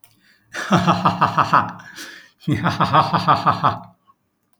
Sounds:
Laughter